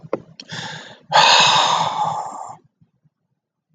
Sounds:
Sigh